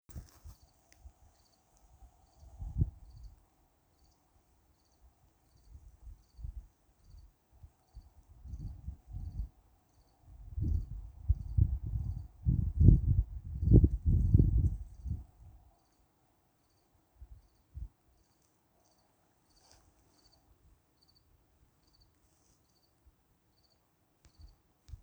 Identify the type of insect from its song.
orthopteran